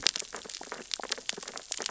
{"label": "biophony, sea urchins (Echinidae)", "recorder": "SoundTrap 600 or HydroMoth"}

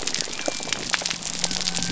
{"label": "biophony", "recorder": "SoundTrap 300"}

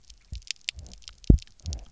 {"label": "biophony, double pulse", "recorder": "SoundTrap 300"}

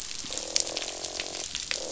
{"label": "biophony, croak", "recorder": "SoundTrap 500"}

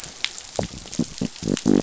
{"label": "biophony", "recorder": "SoundTrap 500"}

